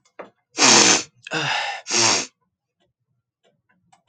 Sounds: Sniff